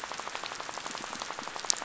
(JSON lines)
{"label": "biophony, rattle", "recorder": "SoundTrap 500"}